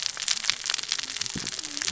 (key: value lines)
label: biophony, cascading saw
recorder: SoundTrap 600 or HydroMoth